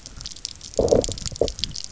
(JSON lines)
{"label": "biophony", "recorder": "SoundTrap 300"}